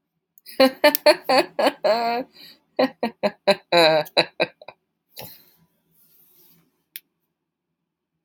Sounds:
Laughter